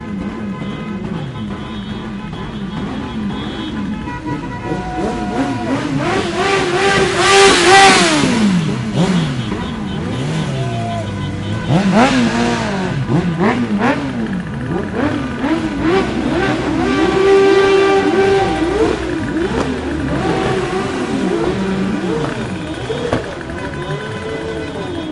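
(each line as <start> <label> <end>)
0.1 Several car horns honk intermittently, creating a festive and chaotic atmosphere. 4.5
4.6 Multiple motorcycles revving engines with clutch and gear-shifting sounds. 10.1
10.6 Loud revving engines, continuous honking, and people shouting create a noisy, celebratory soundscape. 25.1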